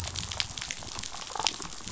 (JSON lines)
{"label": "biophony", "recorder": "SoundTrap 500"}
{"label": "biophony, damselfish", "recorder": "SoundTrap 500"}